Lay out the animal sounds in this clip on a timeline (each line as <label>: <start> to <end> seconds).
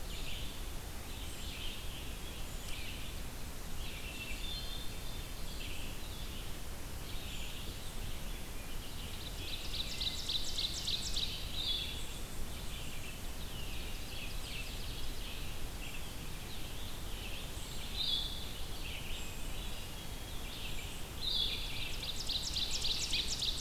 Red-eyed Vireo (Vireo olivaceus): 0.0 to 1.8 seconds
Scarlet Tanager (Piranga olivacea): 1.1 to 2.8 seconds
Red-eyed Vireo (Vireo olivaceus): 2.4 to 23.6 seconds
Hermit Thrush (Catharus guttatus): 4.0 to 5.3 seconds
Ovenbird (Seiurus aurocapilla): 9.2 to 11.5 seconds
Blue-headed Vireo (Vireo solitarius): 11.5 to 12.0 seconds
Ovenbird (Seiurus aurocapilla): 13.8 to 15.3 seconds
unidentified call: 15.6 to 23.6 seconds
Blue-headed Vireo (Vireo solitarius): 17.8 to 21.6 seconds
Hermit Thrush (Catharus guttatus): 19.0 to 20.8 seconds
Ovenbird (Seiurus aurocapilla): 21.5 to 23.6 seconds
American Robin (Turdus migratorius): 23.0 to 23.3 seconds